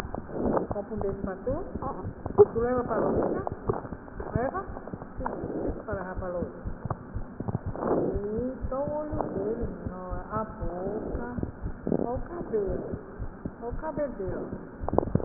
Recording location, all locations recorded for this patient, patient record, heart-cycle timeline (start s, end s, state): mitral valve (MV)
aortic valve (AV)+pulmonary valve (PV)+tricuspid valve (TV)+mitral valve (MV)
#Age: Child
#Sex: Male
#Height: 90.0 cm
#Weight: 14.6 kg
#Pregnancy status: False
#Murmur: Unknown
#Murmur locations: nan
#Most audible location: nan
#Systolic murmur timing: nan
#Systolic murmur shape: nan
#Systolic murmur grading: nan
#Systolic murmur pitch: nan
#Systolic murmur quality: nan
#Diastolic murmur timing: nan
#Diastolic murmur shape: nan
#Diastolic murmur grading: nan
#Diastolic murmur pitch: nan
#Diastolic murmur quality: nan
#Outcome: Abnormal
#Campaign: 2015 screening campaign
0.00	8.06	unannotated
8.06	8.13	diastole
8.13	8.23	S1
8.23	8.32	systole
8.32	8.44	S2
8.44	8.58	diastole
8.58	8.72	S1
8.72	8.84	systole
8.84	8.92	S2
8.92	9.10	diastole
9.10	9.26	S1
9.26	9.35	systole
9.35	9.46	S2
9.46	9.61	diastole
9.61	9.73	S1
9.73	9.84	systole
9.84	9.94	S2
9.94	10.10	diastole
10.10	10.24	S1
10.24	10.36	systole
10.36	10.46	S2
10.46	10.61	diastole
10.61	10.74	S1
10.74	10.84	systole
10.84	10.94	S2
10.94	11.12	diastole
11.12	11.24	S1
11.24	11.32	systole
11.32	11.44	S2
11.44	11.62	diastole
11.62	11.72	S1
11.72	11.86	systole
11.86	12.00	S2
12.00	12.14	diastole
12.14	12.28	S1
12.28	12.38	systole
12.38	12.48	S2
12.48	12.64	diastole
12.64	12.78	S1
12.78	12.90	systole
12.90	13.02	S2
13.02	13.19	diastole
13.19	13.34	S1
13.34	13.43	systole
13.43	13.54	S2
13.54	13.70	diastole
13.70	13.84	S1
13.84	13.94	systole
13.94	14.04	S2
14.04	14.22	diastole
14.22	14.38	S1
14.38	14.48	systole
14.48	14.60	S2
14.60	14.82	diastole
14.82	15.00	S1
15.00	15.14	systole
15.14	15.25	S2